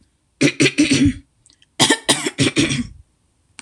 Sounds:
Throat clearing